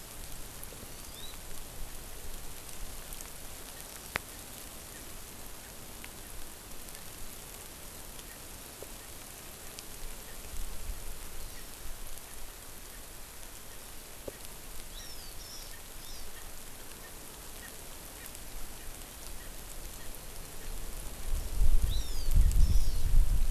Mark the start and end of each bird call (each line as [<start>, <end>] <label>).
[0.81, 1.31] Hawaii Amakihi (Chlorodrepanis virens)
[4.91, 5.01] Erckel's Francolin (Pternistis erckelii)
[8.31, 8.41] Erckel's Francolin (Pternistis erckelii)
[11.41, 11.71] Hawaii Amakihi (Chlorodrepanis virens)
[14.31, 14.41] Erckel's Francolin (Pternistis erckelii)
[14.91, 16.31] Hawaii Amakihi (Chlorodrepanis virens)
[15.01, 15.11] Erckel's Francolin (Pternistis erckelii)
[15.71, 15.81] Erckel's Francolin (Pternistis erckelii)
[16.31, 16.41] Erckel's Francolin (Pternistis erckelii)
[17.01, 17.11] Erckel's Francolin (Pternistis erckelii)
[17.61, 17.71] Erckel's Francolin (Pternistis erckelii)
[18.21, 18.31] Erckel's Francolin (Pternistis erckelii)
[19.31, 19.51] Erckel's Francolin (Pternistis erckelii)
[19.91, 20.11] Erckel's Francolin (Pternistis erckelii)
[21.91, 22.31] Hawaii Amakihi (Chlorodrepanis virens)
[22.61, 23.11] Hawaii Amakihi (Chlorodrepanis virens)